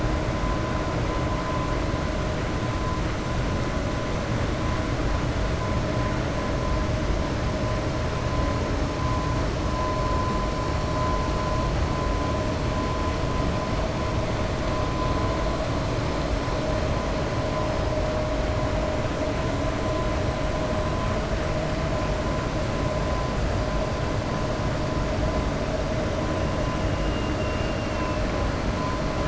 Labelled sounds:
27.0	28.2	killer whale, 2.0 to 3.6 kHz

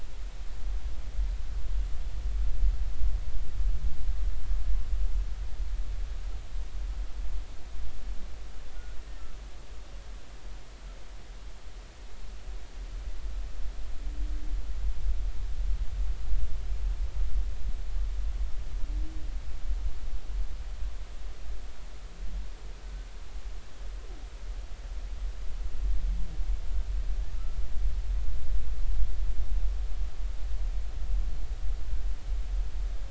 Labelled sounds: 9.0	9.3	humpback whale, 1.7 to 1.9 kHz

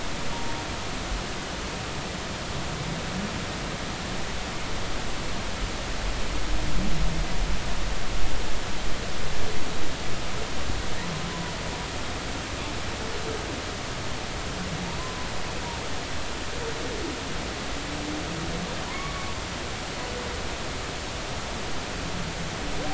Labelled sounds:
15.0	15.3	humpback whale, 0.96 to 1.1 kHz
18.9	19.3	humpback whale, 0.90 to 2.3 kHz

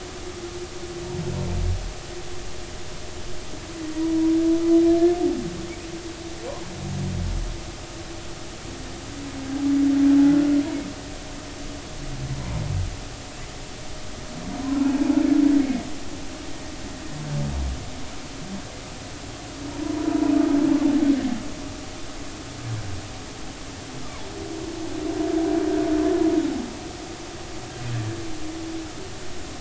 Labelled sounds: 14.6	14.9	humpback whale, 0.96 to 1.1 kHz
24.0	24.3	humpback whale, 0.83 to 1.3 kHz

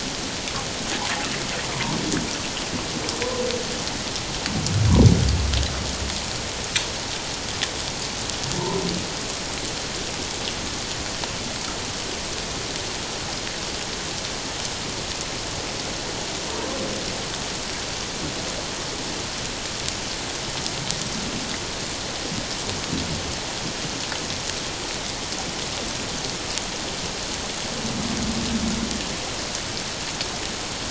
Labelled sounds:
1.7	2.0	humpback whale, 0.88 to 1.2 kHz

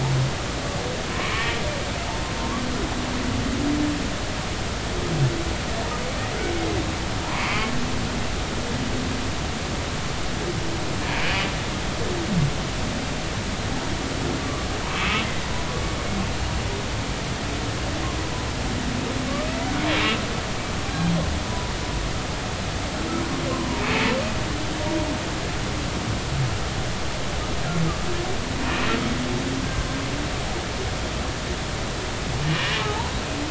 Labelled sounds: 7.3	7.7	humpback whale, 0.86 to 2.5 kHz
11.2	11.4	humpback whale, 2.2 to 2.6 kHz
14.4	15.1	humpback whale, 0.86 to 1.3 kHz
21.4	21.7	humpback whale, 0.96 to 1.0 kHz
23.8	24.1	humpback whale, 2.4 to 2.7 kHz
28.6	28.9	humpback whale, 2.3 to 2.6 kHz
32.6	33.1	humpback whale, 0.80 to 2.0 kHz

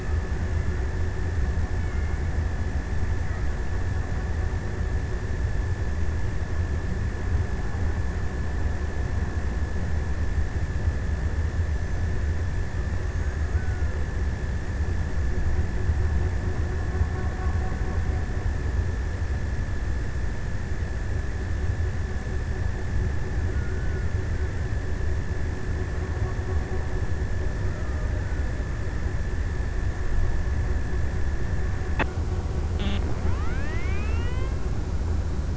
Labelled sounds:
22.8	24.7	killer whale, Bigg's (transient), 1.1 to 1.8 kHz

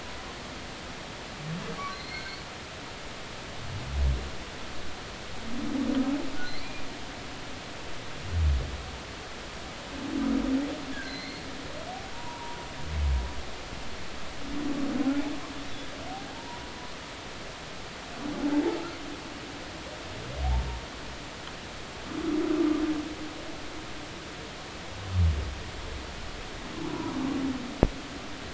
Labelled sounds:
1.9	2.4	humpback whale, 2.0 to 4.5 kHz
6.4	6.9	humpback whale, 2.2 to 4.2 kHz
10.9	11.4	humpback whale, 1.5 to 4.4 kHz
12.1	12.6	humpback whale, 0.86 to 1.0 kHz
16.3	16.7	humpback whale, 0.86 to 1.1 kHz
26.9	27.1	humpback whale, 0.93 to 1.0 kHz

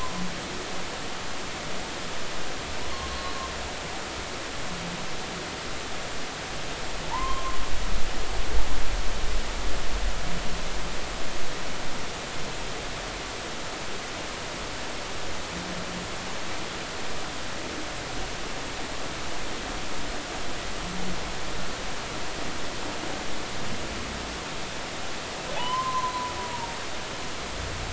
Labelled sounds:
7.1	7.6	humpback whale, 0.83 to 2.1 kHz
25.6	26.8	humpback whale, 0.80 to 3.1 kHz

